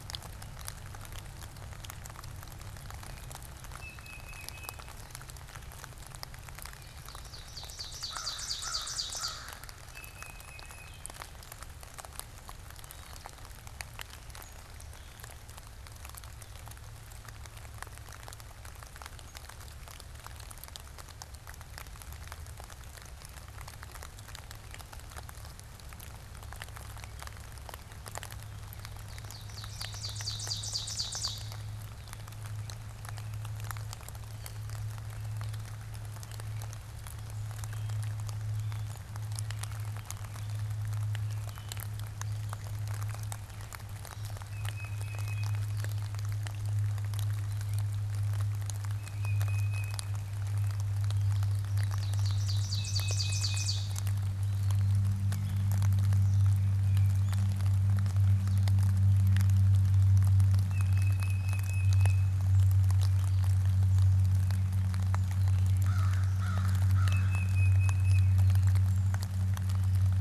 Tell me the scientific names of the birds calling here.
Baeolophus bicolor, Seiurus aurocapilla, Corvus brachyrhynchos, Dumetella carolinensis